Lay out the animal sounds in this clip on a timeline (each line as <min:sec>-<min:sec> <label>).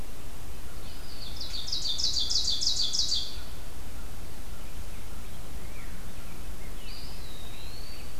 0:00.0-0:01.9 Red-breasted Nuthatch (Sitta canadensis)
0:00.7-0:01.8 Eastern Wood-Pewee (Contopus virens)
0:00.7-0:03.8 Ovenbird (Seiurus aurocapilla)
0:05.5-0:08.2 Red-breasted Nuthatch (Sitta canadensis)
0:06.8-0:08.2 Eastern Wood-Pewee (Contopus virens)